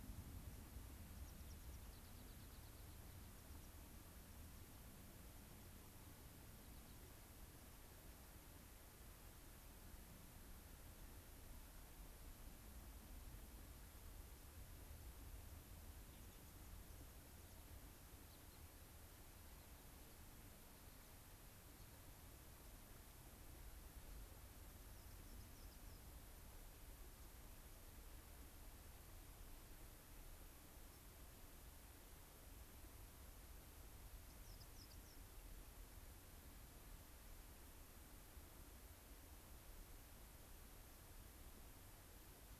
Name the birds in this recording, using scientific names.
Anthus rubescens, unidentified bird, Salpinctes obsoletus